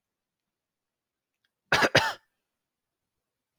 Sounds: Cough